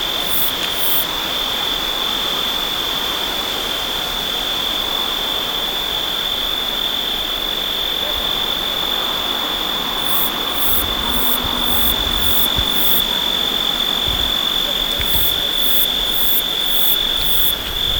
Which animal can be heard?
Uromenus brevicollis, an orthopteran